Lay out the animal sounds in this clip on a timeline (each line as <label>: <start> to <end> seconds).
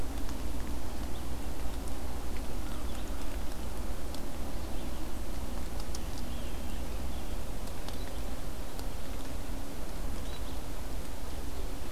Red-eyed Vireo (Vireo olivaceus): 0.0 to 1.6 seconds
Red-eyed Vireo (Vireo olivaceus): 2.3 to 11.9 seconds
Rose-breasted Grosbeak (Pheucticus ludovicianus): 5.7 to 8.2 seconds